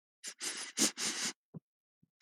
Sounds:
Sniff